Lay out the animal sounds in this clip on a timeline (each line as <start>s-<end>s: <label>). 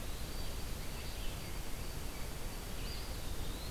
0.0s-2.9s: White-throated Sparrow (Zonotrichia albicollis)
0.0s-3.7s: Red-eyed Vireo (Vireo olivaceus)
2.7s-3.7s: Eastern Wood-Pewee (Contopus virens)